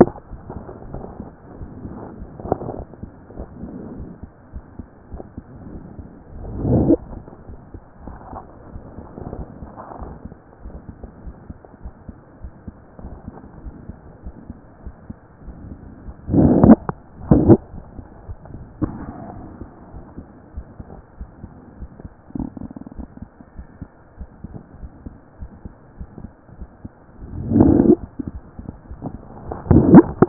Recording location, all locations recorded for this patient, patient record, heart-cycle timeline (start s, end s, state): aortic valve (AV)
aortic valve (AV)+pulmonary valve (PV)+tricuspid valve (TV)+mitral valve (MV)
#Age: Child
#Sex: Male
#Height: 113.0 cm
#Weight: 20.6 kg
#Pregnancy status: False
#Murmur: Present
#Murmur locations: aortic valve (AV)+mitral valve (MV)+pulmonary valve (PV)+tricuspid valve (TV)
#Most audible location: tricuspid valve (TV)
#Systolic murmur timing: Holosystolic
#Systolic murmur shape: Plateau
#Systolic murmur grading: II/VI
#Systolic murmur pitch: Low
#Systolic murmur quality: Harsh
#Diastolic murmur timing: nan
#Diastolic murmur shape: nan
#Diastolic murmur grading: nan
#Diastolic murmur pitch: nan
#Diastolic murmur quality: nan
#Outcome: Normal
#Campaign: 2014 screening campaign
0.00	7.50	unannotated
7.50	7.60	S1
7.60	7.74	systole
7.74	7.82	S2
7.82	8.04	diastole
8.04	8.16	S1
8.16	8.32	systole
8.32	8.42	S2
8.42	8.72	diastole
8.72	8.82	S1
8.82	8.96	systole
8.96	9.06	S2
9.06	9.36	diastole
9.36	9.45	S1
9.45	9.60	systole
9.60	9.70	S2
9.70	10.00	diastole
10.00	10.11	S1
10.11	10.26	systole
10.26	10.38	S2
10.38	10.64	diastole
10.64	10.77	S1
10.77	11.00	systole
11.00	11.08	S2
11.08	11.24	diastole
11.24	11.34	S1
11.34	11.48	systole
11.48	11.58	S2
11.58	11.82	diastole
11.82	11.94	S1
11.94	12.08	systole
12.08	12.18	S2
12.18	12.42	diastole
12.42	12.52	S1
12.52	12.68	systole
12.68	12.76	S2
12.76	13.02	diastole
13.02	13.16	S1
13.16	13.28	systole
13.28	13.40	S2
13.40	13.64	diastole
13.64	13.74	S1
13.74	13.88	systole
13.88	13.98	S2
13.98	14.24	diastole
14.24	14.34	S1
14.34	14.50	systole
14.50	14.58	S2
14.58	14.84	diastole
14.84	14.94	S1
14.94	15.10	systole
15.10	15.18	S2
15.18	15.44	diastole
15.44	15.56	S1
15.56	15.68	systole
15.68	15.78	S2
15.78	16.07	diastole
16.07	30.29	unannotated